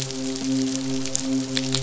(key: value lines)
label: biophony, midshipman
recorder: SoundTrap 500